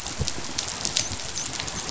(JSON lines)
{"label": "biophony, dolphin", "recorder": "SoundTrap 500"}